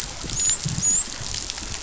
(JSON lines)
{"label": "biophony, dolphin", "recorder": "SoundTrap 500"}